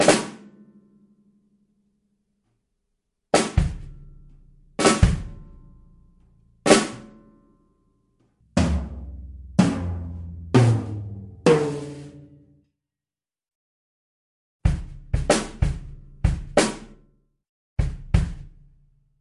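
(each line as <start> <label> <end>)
0.0 A short sequence of tones is played on a drum set. 0.7
3.3 A sequence of tones is played on a drum set. 4.1
4.7 A sequence of tones is played on a drum set. 5.6
6.6 A sequence of tones is played on a drum set. 7.2
8.5 A muffled drum sound. 12.5
14.6 A rhythmic sequence is played on a drum kit. 17.0
17.8 A rhythmic sequence is played on a drum kit. 18.5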